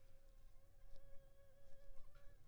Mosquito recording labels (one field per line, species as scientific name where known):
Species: Anopheles funestus s.s.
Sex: female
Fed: unfed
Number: one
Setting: cup